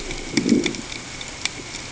{"label": "ambient", "recorder": "HydroMoth"}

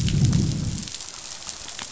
{"label": "biophony, growl", "recorder": "SoundTrap 500"}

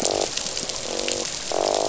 {"label": "biophony, croak", "recorder": "SoundTrap 500"}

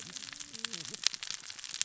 {"label": "biophony, cascading saw", "recorder": "SoundTrap 600 or HydroMoth"}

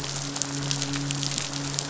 {"label": "biophony, midshipman", "recorder": "SoundTrap 500"}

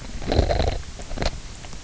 {"label": "biophony, low growl", "recorder": "SoundTrap 300"}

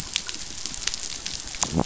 {"label": "biophony", "recorder": "SoundTrap 500"}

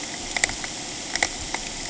{"label": "ambient", "recorder": "HydroMoth"}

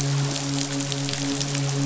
{"label": "biophony, midshipman", "recorder": "SoundTrap 500"}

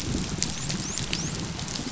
{"label": "biophony, dolphin", "recorder": "SoundTrap 500"}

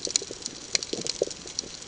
{"label": "ambient", "recorder": "HydroMoth"}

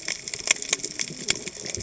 {"label": "biophony, cascading saw", "recorder": "HydroMoth"}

